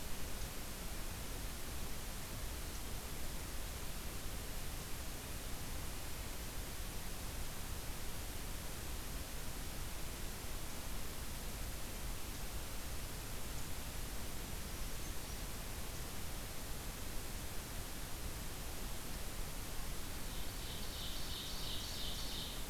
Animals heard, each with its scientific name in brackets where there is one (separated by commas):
Ovenbird (Seiurus aurocapilla)